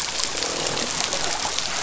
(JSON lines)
{"label": "biophony, croak", "recorder": "SoundTrap 500"}